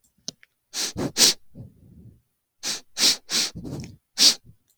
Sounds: Sniff